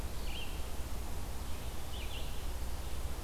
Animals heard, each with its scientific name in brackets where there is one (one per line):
Red-eyed Vireo (Vireo olivaceus)